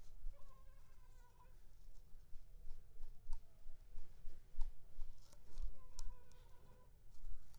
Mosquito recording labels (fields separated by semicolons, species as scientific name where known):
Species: Culex pipiens complex; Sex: female; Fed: unfed; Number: one; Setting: cup